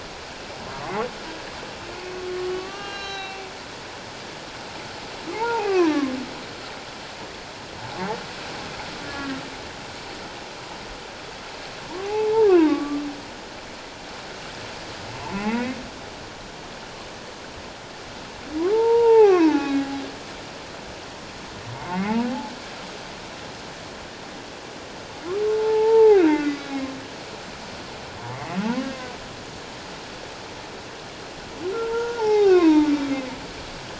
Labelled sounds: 0.7	1.0	humpback whale, 0.91 to 1.2 kHz
1.9	3.4	humpback whale, 1.1 to 6.5 kHz
5.3	6.1	humpback whale, 0.78 to 2.1 kHz
9.1	9.4	humpback whale, 1.6 to 1.8 kHz
12.0	13.0	humpback whale, 0.78 to 1.8 kHz
15.2	15.7	humpback whale, 0.78 to 2.3 kHz
18.7	19.9	humpback whale, 0.78 to 2.8 kHz
21.8	22.5	humpback whale, 0.78 to 2.2 kHz
25.5	26.7	humpback whale, 0.78 to 2.2 kHz
28.6	28.9	humpback whale, 0.81 to 1.1 kHz
31.8	32.9	humpback whale, 0.78 to 2.8 kHz

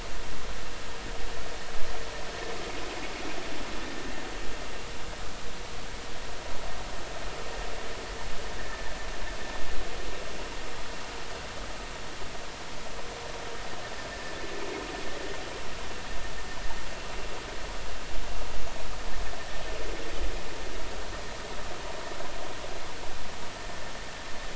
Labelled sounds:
8.6	8.9	vessel noise, 1.6 to 1.9 kHz
14.1	14.4	vessel noise, 1.7 to 1.9 kHz

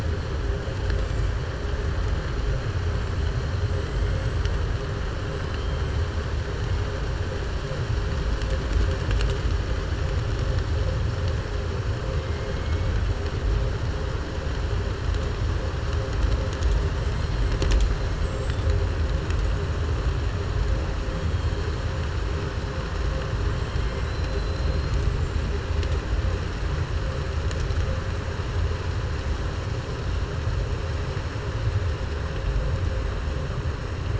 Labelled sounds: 23.7	24.9	killer whale, southern resident, 2.2 to 5.1 kHz

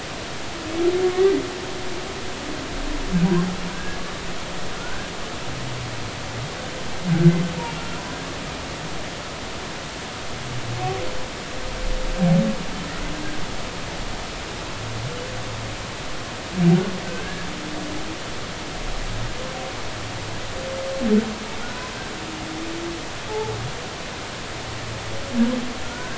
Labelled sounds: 1.1	1.4	humpback whale, 1.8 to 2.0 kHz
3.7	4.0	humpback whale, 1.5 to 1.7 kHz
4.8	5.1	humpback whale, 1.3 to 1.7 kHz
7.8	8.0	humpback whale, 1.3 to 1.5 kHz
17.0	17.5	humpback whale, 1.5 to 1.8 kHz
23.3	23.5	humpback whale, 0.80 to 0.93 kHz
25.8	26.1	humpback whale, 1.4 to 1.6 kHz

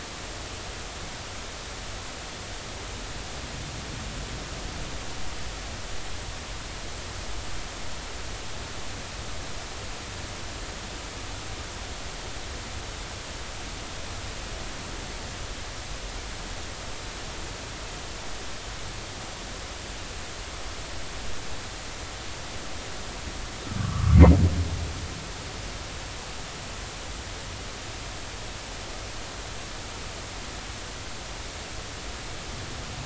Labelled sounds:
23.8	24.2	humpback whale, 1.1 to 1.4 kHz

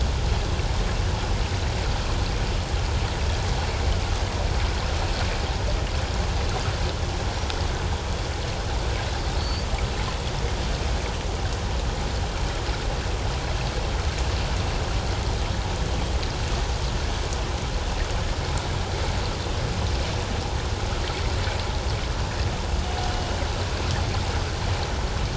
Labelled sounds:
9.4	9.7	killer whale, northern resident, 4.2 to 4.8 kHz

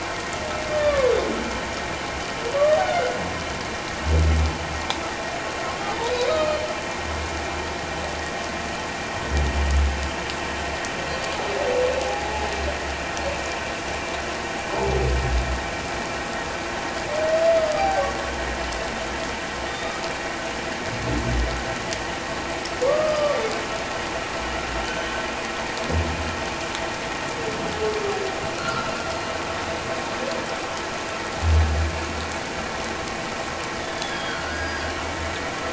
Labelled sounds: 0.7	1.1	humpback whale, 0.97 to 1.2 kHz
2.8	3.2	humpback whale, 1.3 to 1.6 kHz
6.3	6.7	humpback whale, 1.2 to 4.4 kHz
12.1	12.3	humpback whale, 0.78 to 0.88 kHz
17.6	18.0	humpback whale, 0.78 to 1.3 kHz
19.7	20.0	humpback whale, 1.1 to 3.8 kHz
22.8	23.4	humpback whale, 1.1 to 1.3 kHz
24.8	25.2	humpback whale, 3.0 to 3.2 kHz
28.6	28.9	humpback whale, 1.2 to 1.5 kHz
33.8	34.8	humpback whale, 1.4 to 5.0 kHz

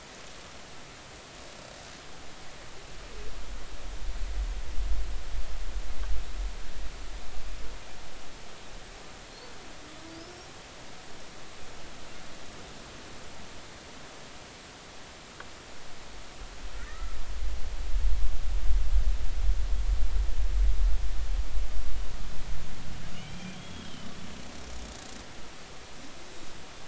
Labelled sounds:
16.9	17.2	killer whale, Bigg's (transient), 1.2 to 1.4 kHz
23.1	24.1	killer whale, Bigg's (transient), 2.1 to 3.4 kHz

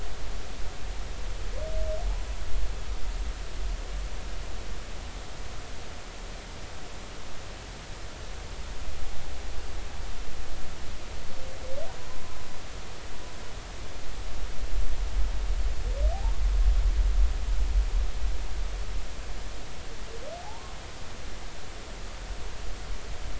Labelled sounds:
20.4	20.8	humpback whale, 0.80 to 1.1 kHz

